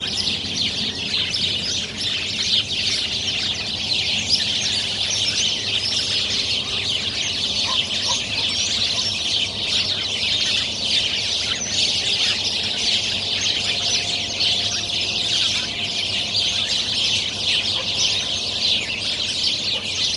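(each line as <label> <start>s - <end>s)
Background rustling. 0.0s - 20.1s
Many birds chirping chaotically. 0.0s - 20.1s
A dog barks faintly in the background. 7.6s - 9.8s
A dog barks briefly in the background. 17.7s - 18.4s
A dog barks briefly in the background. 19.6s - 20.2s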